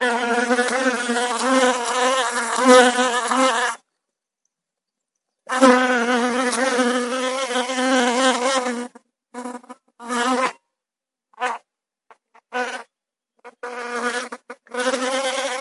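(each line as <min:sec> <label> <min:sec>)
0:00.0 A fly buzzes rapidly with fluctuating sounds as it moves around continuously. 0:03.8
0:05.4 A fly buzzes rapidly with fluctuating sounds as it moves around continuously. 0:09.0
0:09.3 A fly buzzes briefly, pauses momentarily, and then resumes. 0:15.6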